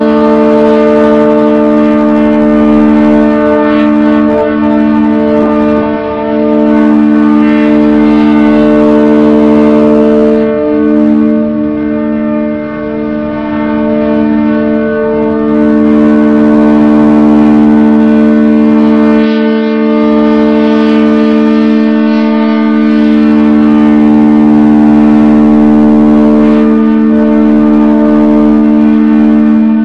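A very loud siren repeats outdoors, likely a warning siren. 0.0 - 29.8

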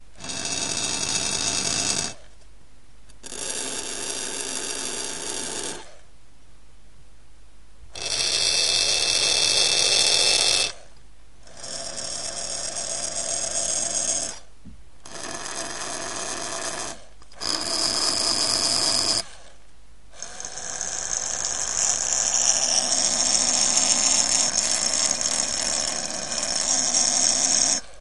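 A high-pitched metallic scratching sound. 0.0 - 28.0

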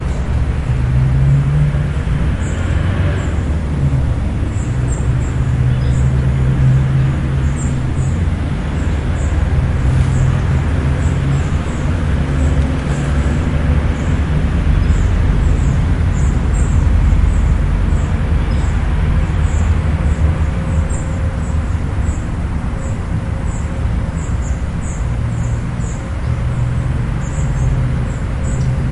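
A bird chirps sharply and slightly distantly. 0.0 - 28.9
Vehicles are passing by outdoors, producing whooshing sounds and faint engine hums. 0.0 - 28.9

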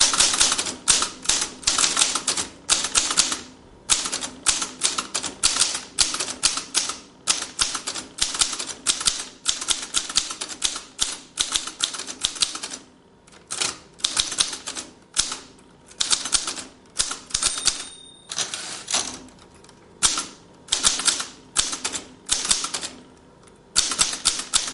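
The constant sound of typing on a typewriter. 0.0 - 24.7

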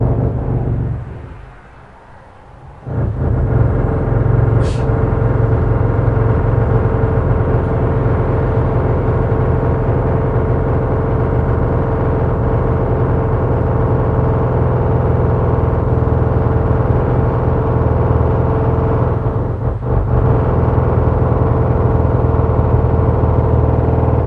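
Someone inhales heavily near the recorder. 0.0 - 1.9
A low rumble of a drill going through a wall in the distance for a short time. 2.8 - 24.3
A person inhales heavily near the recorder. 4.4 - 5.2

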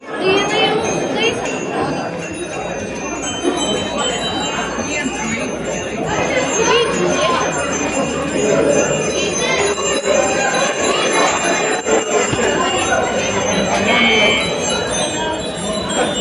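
A metallic bell ringing continuously indoors. 0.0 - 16.2
People talking with echoes in the background. 0.0 - 16.2

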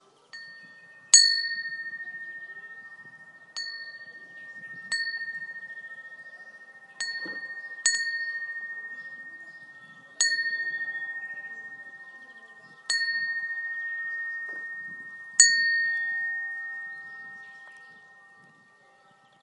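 A bell or chime sounds periodically. 0.0 - 19.4
A bird chirping in the background. 2.2 - 6.9
Water flowing faintly from a tap or fountain in the background. 11.6 - 19.4

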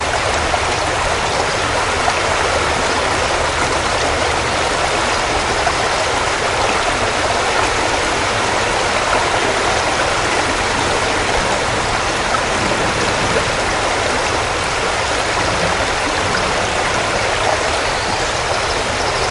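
Water flowing and gurgling softly and continuously in a creek. 0.0 - 19.3

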